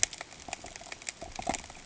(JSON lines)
{"label": "ambient", "recorder": "HydroMoth"}